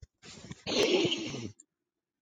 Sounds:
Sniff